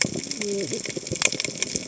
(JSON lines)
{"label": "biophony, cascading saw", "recorder": "HydroMoth"}